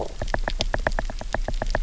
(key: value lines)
label: biophony, knock
recorder: SoundTrap 300